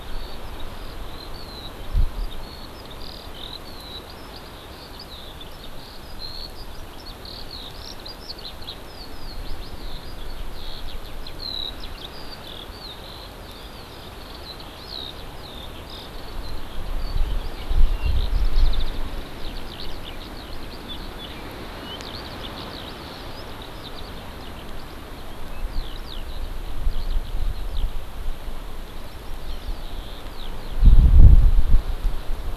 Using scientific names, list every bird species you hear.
Alauda arvensis